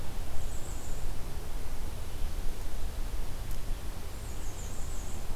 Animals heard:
Bay-breasted Warbler (Setophaga castanea)

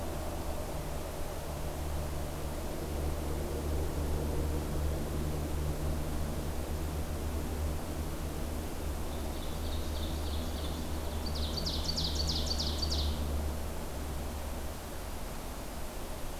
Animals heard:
Ovenbird (Seiurus aurocapilla)

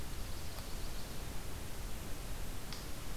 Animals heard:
Chestnut-sided Warbler (Setophaga pensylvanica)

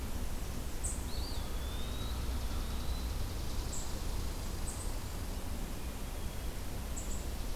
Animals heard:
unidentified call
Chipping Sparrow (Spizella passerina)
Blackburnian Warbler (Setophaga fusca)
Eastern Wood-Pewee (Contopus virens)

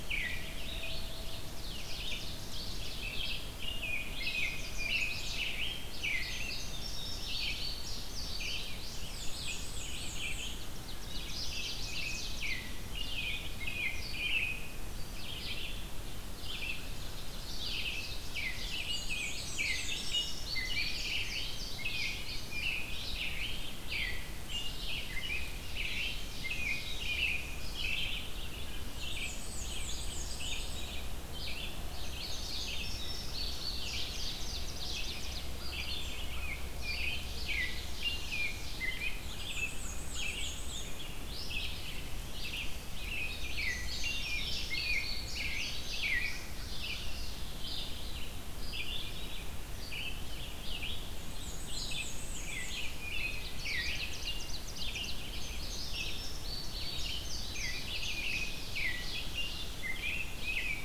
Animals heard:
Indigo Bunting (Passerina cyanea)
American Robin (Turdus migratorius)
Red-eyed Vireo (Vireo olivaceus)
Chestnut-sided Warbler (Setophaga pensylvanica)
Ovenbird (Seiurus aurocapilla)
Black-and-white Warbler (Mniotilta varia)

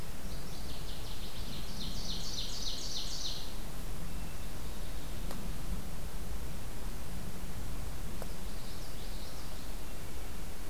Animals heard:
Common Yellowthroat (Geothlypis trichas)
Ovenbird (Seiurus aurocapilla)
Northern Waterthrush (Parkesia noveboracensis)

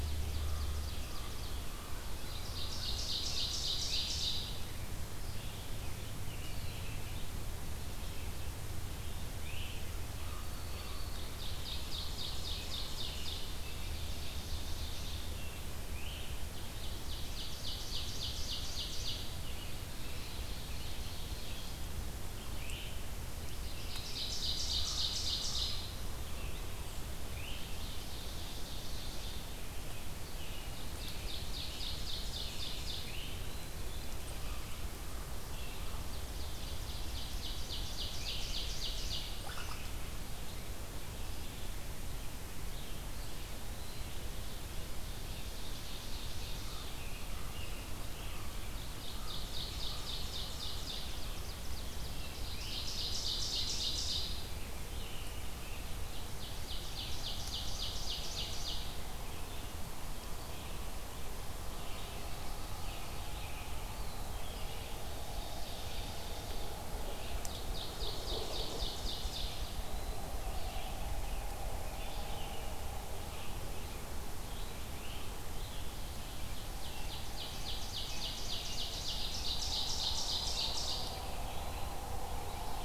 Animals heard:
Ovenbird (Seiurus aurocapilla)
unknown mammal
Eastern Wood-Pewee (Contopus virens)
Great Crested Flycatcher (Myiarchus crinitus)
Black-throated Green Warbler (Setophaga virens)
American Robin (Turdus migratorius)
Red-eyed Vireo (Vireo olivaceus)
Common Raven (Corvus corax)

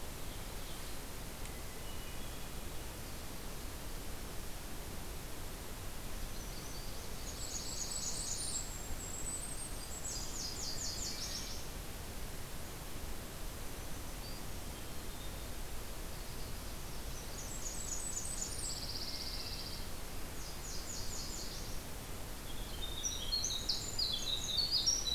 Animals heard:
Winter Wren (Troglodytes hiemalis)
Golden-crowned Kinglet (Regulus satrapa)
Blackburnian Warbler (Setophaga fusca)
Black-throated Green Warbler (Setophaga virens)
Nashville Warbler (Leiothlypis ruficapilla)
Hermit Thrush (Catharus guttatus)
Ovenbird (Seiurus aurocapilla)
Pine Warbler (Setophaga pinus)

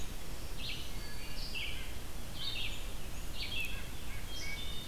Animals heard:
Black-throated Green Warbler (Setophaga virens)
Red-eyed Vireo (Vireo olivaceus)
Wood Thrush (Hylocichla mustelina)
White-breasted Nuthatch (Sitta carolinensis)

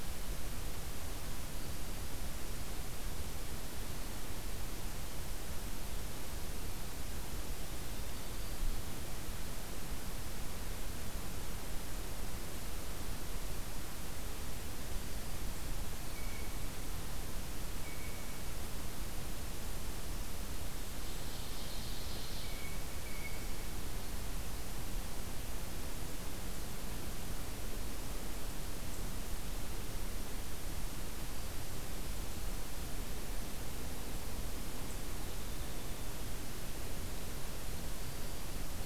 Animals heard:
Blue Jay (Cyanocitta cristata)
Black-throated Green Warbler (Setophaga virens)
Ovenbird (Seiurus aurocapilla)

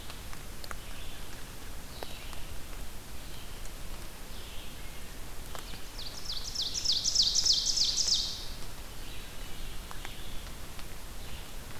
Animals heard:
Red-eyed Vireo (Vireo olivaceus)
Ovenbird (Seiurus aurocapilla)

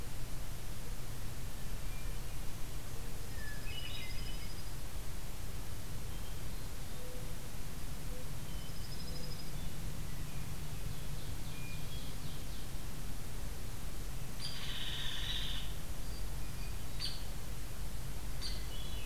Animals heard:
Hermit Thrush (Catharus guttatus)
Dark-eyed Junco (Junco hyemalis)
Ovenbird (Seiurus aurocapilla)
Hairy Woodpecker (Dryobates villosus)
Mourning Dove (Zenaida macroura)

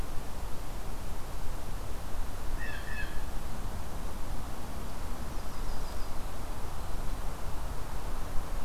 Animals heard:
Blue Jay (Cyanocitta cristata)
Yellow-rumped Warbler (Setophaga coronata)

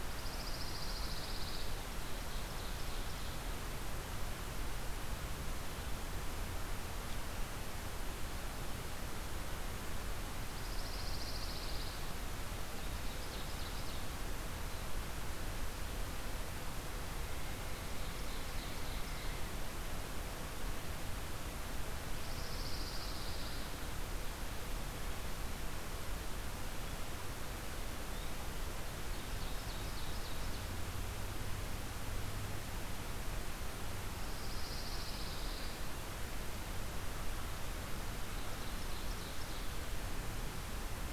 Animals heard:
Ovenbird (Seiurus aurocapilla)
Pine Warbler (Setophaga pinus)

